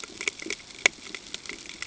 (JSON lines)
{"label": "ambient", "recorder": "HydroMoth"}